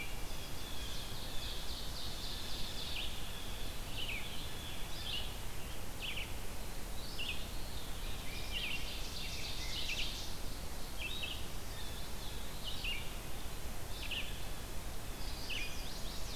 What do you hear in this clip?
Blue Jay, Red-eyed Vireo, Chestnut-sided Warbler, Ovenbird, Veery, Rose-breasted Grosbeak